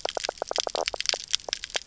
{"label": "biophony, knock croak", "recorder": "SoundTrap 300"}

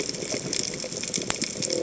{"label": "biophony", "recorder": "HydroMoth"}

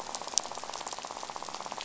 {"label": "biophony, rattle", "recorder": "SoundTrap 500"}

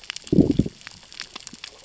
{"label": "biophony, growl", "recorder": "SoundTrap 600 or HydroMoth"}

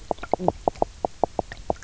{"label": "biophony, knock croak", "recorder": "SoundTrap 300"}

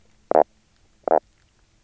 {"label": "biophony, knock croak", "recorder": "SoundTrap 300"}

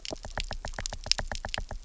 {"label": "biophony, knock", "recorder": "SoundTrap 300"}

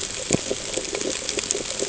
{"label": "ambient", "recorder": "HydroMoth"}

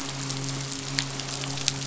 {"label": "biophony, midshipman", "recorder": "SoundTrap 500"}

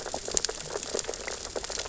{"label": "biophony, sea urchins (Echinidae)", "recorder": "SoundTrap 600 or HydroMoth"}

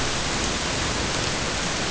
{"label": "ambient", "recorder": "HydroMoth"}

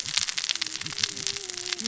{"label": "biophony, cascading saw", "recorder": "SoundTrap 600 or HydroMoth"}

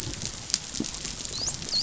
{"label": "biophony, dolphin", "recorder": "SoundTrap 500"}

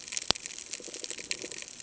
{"label": "ambient", "recorder": "HydroMoth"}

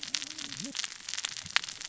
{"label": "biophony, cascading saw", "recorder": "SoundTrap 600 or HydroMoth"}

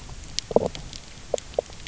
{"label": "biophony, knock croak", "recorder": "SoundTrap 300"}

